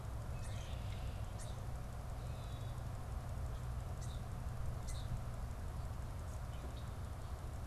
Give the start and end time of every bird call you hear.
0.3s-0.7s: European Starling (Sturnus vulgaris)
0.3s-1.1s: Red-winged Blackbird (Agelaius phoeniceus)
1.3s-1.6s: European Starling (Sturnus vulgaris)
2.2s-2.9s: Common Grackle (Quiscalus quiscula)
3.8s-5.3s: European Starling (Sturnus vulgaris)

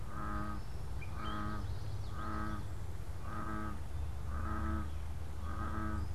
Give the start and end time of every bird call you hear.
1.0s-2.8s: Common Yellowthroat (Geothlypis trichas)

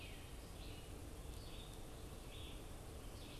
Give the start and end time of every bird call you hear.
0.0s-3.4s: Red-eyed Vireo (Vireo olivaceus)

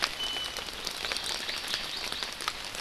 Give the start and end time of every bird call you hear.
0.2s-0.7s: Iiwi (Drepanis coccinea)
0.8s-2.3s: Hawaii Amakihi (Chlorodrepanis virens)

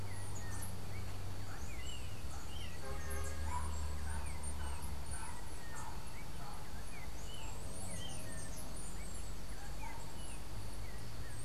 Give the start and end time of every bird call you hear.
0.0s-11.4s: Chestnut-capped Brushfinch (Arremon brunneinucha)
0.0s-11.4s: Yellow-backed Oriole (Icterus chrysater)

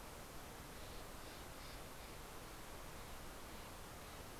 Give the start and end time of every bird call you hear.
0.0s-4.3s: Steller's Jay (Cyanocitta stelleri)

